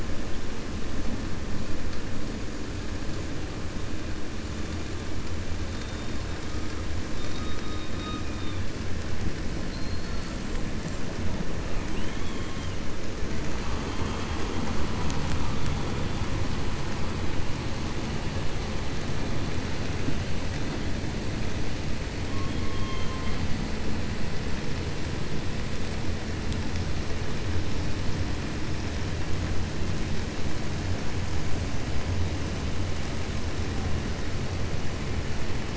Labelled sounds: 7.1	8.6	killer whale, 3.5 to 6.2 kHz
9.6	10.3	killer whale, 4.1 to 4.6 kHz
11.9	12.4	killer whale, 2.1 to 3.4 kHz
22.5	23.4	killer whale, 1.0 to 4.1 kHz

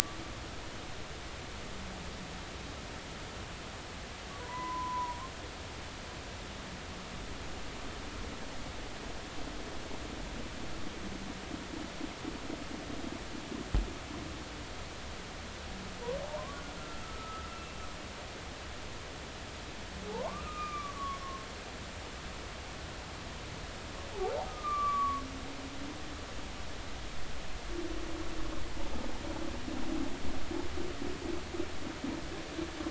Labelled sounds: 4.4	5.2	humpback whale, 0.90 to 2.0 kHz
16.2	17.5	humpback whale, 0.80 to 1.4 kHz
20.1	21.2	humpback whale, 0.80 to 2.5 kHz
24.5	25.2	humpback whale, 1.0 to 2.5 kHz

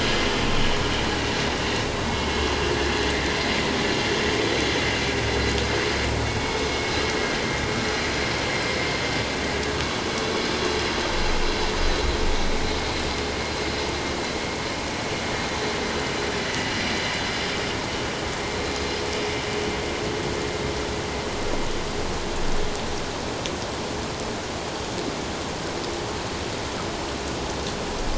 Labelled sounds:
2.1	2.4	vessel noise, 2.1 to 2.2 kHz
16.5	16.7	vessel noise, 1.9 to 2.0 kHz

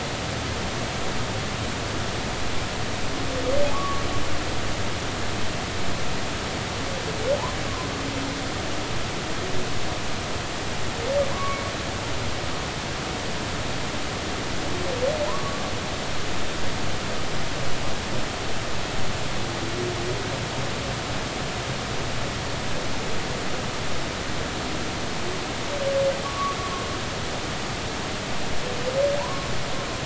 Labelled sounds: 3.7	4.0	humpback whale, 1.1 to 1.2 kHz
11.3	11.6	humpback whale, 0.96 to 2.3 kHz
15.3	15.6	humpback whale, 0.90 to 1.2 kHz
26.2	26.6	humpback whale, 1.1 to 1.2 kHz
29.2	29.5	humpback whale, 0.80 to 1.2 kHz

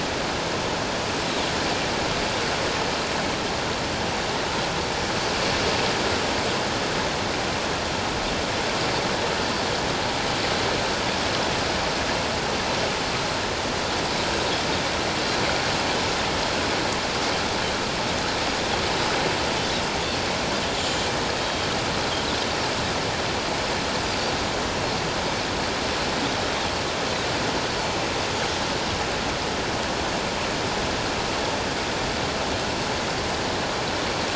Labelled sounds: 21.4	21.7	Pacific white-sided dolphin, 3.1 to 3.3 kHz

